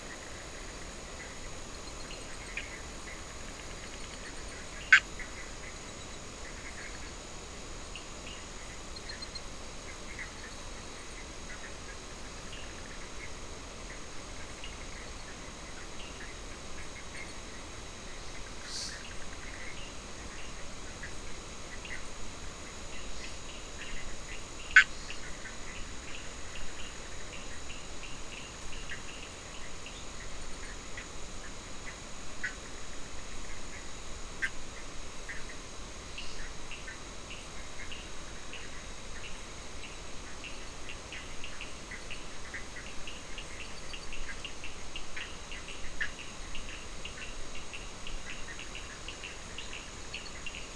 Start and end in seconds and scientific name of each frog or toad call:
0.0	50.7	Boana bischoffi
7.7	8.8	Sphaenorhynchus surdus
12.5	30.1	Sphaenorhynchus surdus
36.1	50.7	Sphaenorhynchus surdus